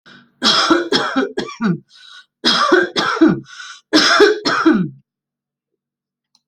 {"expert_labels": [{"quality": "good", "cough_type": "dry", "dyspnea": false, "wheezing": false, "stridor": false, "choking": false, "congestion": false, "nothing": true, "diagnosis": "upper respiratory tract infection", "severity": "mild"}], "age": 59, "gender": "female", "respiratory_condition": true, "fever_muscle_pain": false, "status": "healthy"}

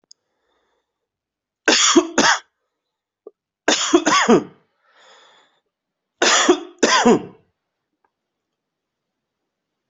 {"expert_labels": [{"quality": "good", "cough_type": "dry", "dyspnea": false, "wheezing": false, "stridor": false, "choking": false, "congestion": false, "nothing": true, "diagnosis": "upper respiratory tract infection", "severity": "mild"}], "age": 37, "gender": "male", "respiratory_condition": false, "fever_muscle_pain": false, "status": "symptomatic"}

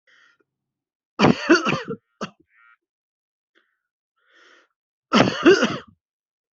{"expert_labels": [{"quality": "good", "cough_type": "dry", "dyspnea": false, "wheezing": false, "stridor": false, "choking": false, "congestion": false, "nothing": true, "diagnosis": "upper respiratory tract infection", "severity": "mild"}]}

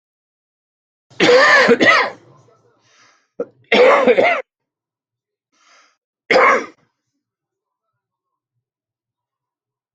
{"expert_labels": [{"quality": "good", "cough_type": "dry", "dyspnea": false, "wheezing": false, "stridor": false, "choking": false, "congestion": false, "nothing": true, "diagnosis": "COVID-19", "severity": "mild"}, {"quality": "ok", "cough_type": "wet", "dyspnea": false, "wheezing": false, "stridor": false, "choking": false, "congestion": false, "nothing": true, "diagnosis": "COVID-19", "severity": "mild"}, {"quality": "good", "cough_type": "wet", "dyspnea": false, "wheezing": false, "stridor": false, "choking": false, "congestion": false, "nothing": true, "diagnosis": "lower respiratory tract infection", "severity": "mild"}, {"quality": "good", "cough_type": "dry", "dyspnea": false, "wheezing": false, "stridor": false, "choking": false, "congestion": false, "nothing": true, "diagnosis": "lower respiratory tract infection", "severity": "mild"}], "age": 59, "gender": "male", "respiratory_condition": true, "fever_muscle_pain": false, "status": "symptomatic"}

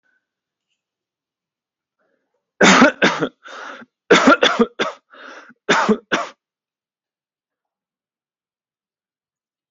{"expert_labels": [{"quality": "good", "cough_type": "dry", "dyspnea": true, "wheezing": false, "stridor": false, "choking": false, "congestion": false, "nothing": false, "diagnosis": "COVID-19", "severity": "mild"}], "age": 28, "gender": "male", "respiratory_condition": false, "fever_muscle_pain": false, "status": "healthy"}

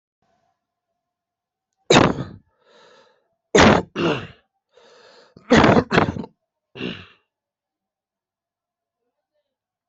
{"expert_labels": [{"quality": "good", "cough_type": "wet", "dyspnea": true, "wheezing": false, "stridor": false, "choking": false, "congestion": false, "nothing": false, "diagnosis": "lower respiratory tract infection", "severity": "severe"}], "age": 35, "gender": "male", "respiratory_condition": true, "fever_muscle_pain": false, "status": "COVID-19"}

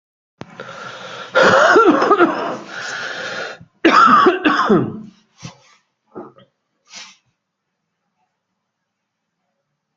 {"expert_labels": [{"quality": "ok", "cough_type": "dry", "dyspnea": true, "wheezing": false, "stridor": true, "choking": false, "congestion": false, "nothing": false, "diagnosis": "obstructive lung disease", "severity": "severe"}], "age": 38, "gender": "male", "respiratory_condition": false, "fever_muscle_pain": false, "status": "symptomatic"}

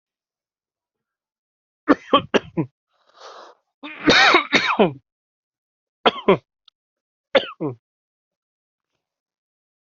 {"expert_labels": [{"quality": "ok", "cough_type": "dry", "dyspnea": false, "wheezing": false, "stridor": false, "choking": false, "congestion": false, "nothing": true, "diagnosis": "COVID-19", "severity": "severe"}, {"quality": "good", "cough_type": "dry", "dyspnea": false, "wheezing": false, "stridor": false, "choking": false, "congestion": false, "nothing": true, "diagnosis": "obstructive lung disease", "severity": "mild"}, {"quality": "good", "cough_type": "wet", "dyspnea": false, "wheezing": false, "stridor": false, "choking": false, "congestion": false, "nothing": true, "diagnosis": "upper respiratory tract infection", "severity": "mild"}, {"quality": "good", "cough_type": "dry", "dyspnea": false, "wheezing": false, "stridor": false, "choking": false, "congestion": false, "nothing": true, "diagnosis": "upper respiratory tract infection", "severity": "mild"}], "age": 35, "gender": "male", "respiratory_condition": false, "fever_muscle_pain": true, "status": "symptomatic"}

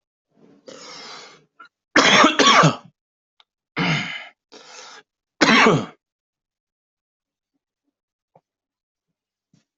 {"expert_labels": [{"quality": "ok", "cough_type": "unknown", "dyspnea": false, "wheezing": false, "stridor": false, "choking": false, "congestion": false, "nothing": true, "diagnosis": "COVID-19", "severity": "severe"}, {"quality": "good", "cough_type": "wet", "dyspnea": false, "wheezing": false, "stridor": false, "choking": false, "congestion": false, "nothing": true, "diagnosis": "lower respiratory tract infection", "severity": "mild"}, {"quality": "good", "cough_type": "wet", "dyspnea": false, "wheezing": false, "stridor": false, "choking": false, "congestion": false, "nothing": true, "diagnosis": "lower respiratory tract infection", "severity": "mild"}, {"quality": "good", "cough_type": "wet", "dyspnea": false, "wheezing": false, "stridor": false, "choking": false, "congestion": false, "nothing": true, "diagnosis": "lower respiratory tract infection", "severity": "mild"}], "age": 31, "gender": "male", "respiratory_condition": true, "fever_muscle_pain": true, "status": "COVID-19"}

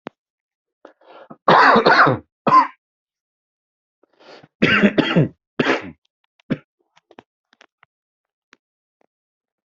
{"expert_labels": [{"quality": "good", "cough_type": "dry", "dyspnea": false, "wheezing": false, "stridor": false, "choking": false, "congestion": false, "nothing": true, "diagnosis": "upper respiratory tract infection", "severity": "mild"}], "age": 43, "gender": "male", "respiratory_condition": true, "fever_muscle_pain": false, "status": "healthy"}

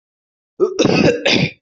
{"expert_labels": [{"quality": "ok", "cough_type": "unknown", "dyspnea": false, "wheezing": false, "stridor": false, "choking": false, "congestion": false, "nothing": true, "diagnosis": "healthy cough", "severity": "pseudocough/healthy cough"}], "gender": "female", "respiratory_condition": false, "fever_muscle_pain": false, "status": "healthy"}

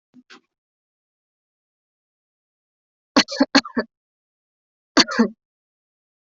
{"expert_labels": [{"quality": "good", "cough_type": "dry", "dyspnea": false, "wheezing": false, "stridor": false, "choking": false, "congestion": false, "nothing": true, "diagnosis": "healthy cough", "severity": "pseudocough/healthy cough"}], "age": 19, "gender": "female", "respiratory_condition": false, "fever_muscle_pain": true, "status": "symptomatic"}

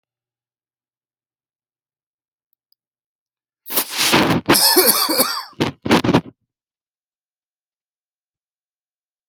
{"expert_labels": [{"quality": "poor", "cough_type": "unknown", "dyspnea": false, "wheezing": false, "stridor": false, "choking": false, "congestion": false, "nothing": true, "diagnosis": "COVID-19", "severity": "mild"}, {"quality": "poor", "cough_type": "dry", "dyspnea": false, "wheezing": true, "stridor": false, "choking": false, "congestion": false, "nothing": false, "diagnosis": "obstructive lung disease", "severity": "mild"}, {"quality": "ok", "cough_type": "unknown", "dyspnea": false, "wheezing": false, "stridor": false, "choking": false, "congestion": false, "nothing": true, "diagnosis": "upper respiratory tract infection", "severity": "unknown"}, {"quality": "ok", "cough_type": "dry", "dyspnea": false, "wheezing": false, "stridor": false, "choking": false, "congestion": false, "nothing": true, "diagnosis": "upper respiratory tract infection", "severity": "unknown"}], "age": 69, "gender": "male", "respiratory_condition": false, "fever_muscle_pain": false, "status": "healthy"}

